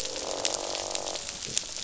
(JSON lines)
{"label": "biophony, croak", "recorder": "SoundTrap 500"}